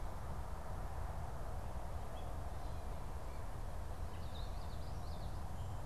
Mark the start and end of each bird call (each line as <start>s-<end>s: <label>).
4.0s-5.3s: Common Yellowthroat (Geothlypis trichas)